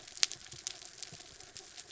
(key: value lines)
label: anthrophony, mechanical
recorder: SoundTrap 300